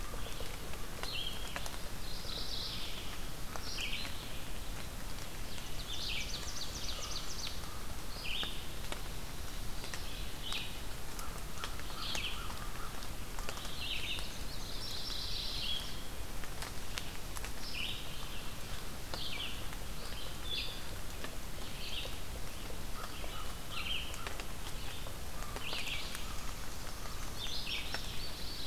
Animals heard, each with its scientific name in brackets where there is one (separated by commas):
American Crow (Corvus brachyrhynchos), Ovenbird (Seiurus aurocapilla), Red-eyed Vireo (Vireo olivaceus), Mourning Warbler (Geothlypis philadelphia)